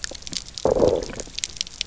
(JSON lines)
{"label": "biophony, low growl", "recorder": "SoundTrap 300"}